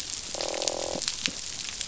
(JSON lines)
{"label": "biophony, croak", "recorder": "SoundTrap 500"}